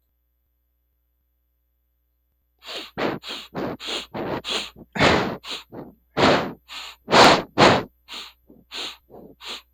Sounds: Sniff